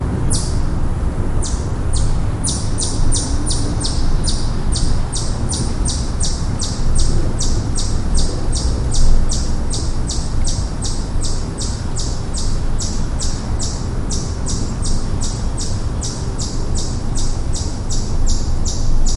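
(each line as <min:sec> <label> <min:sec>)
0:00.0 Peaceful autumn forest ambience featuring natural outdoor sounds and tranquility. 0:01.3
0:01.4 Late fall forest ambience with birds tweeting in an open outdoor setting. 0:19.2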